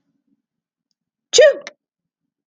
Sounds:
Sneeze